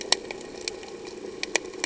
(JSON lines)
{"label": "anthrophony, boat engine", "recorder": "HydroMoth"}